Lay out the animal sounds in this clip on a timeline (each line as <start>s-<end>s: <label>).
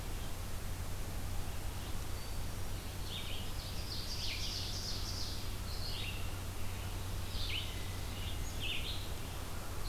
2.8s-9.9s: Red-eyed Vireo (Vireo olivaceus)
3.2s-5.5s: Ovenbird (Seiurus aurocapilla)